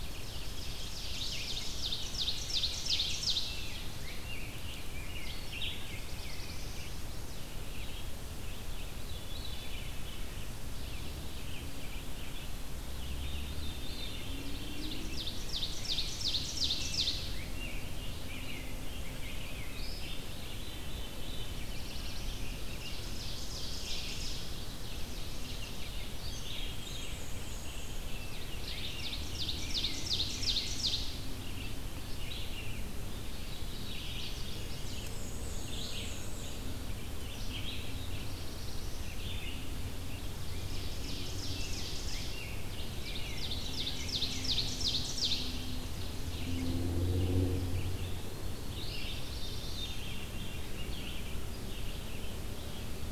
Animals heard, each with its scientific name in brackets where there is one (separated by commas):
Black-and-white Warbler (Mniotilta varia), Red-eyed Vireo (Vireo olivaceus), Eastern Wood-Pewee (Contopus virens), Ovenbird (Seiurus aurocapilla), Chestnut-sided Warbler (Setophaga pensylvanica), Veery (Catharus fuscescens), Rose-breasted Grosbeak (Pheucticus ludovicianus), Black-throated Blue Warbler (Setophaga caerulescens)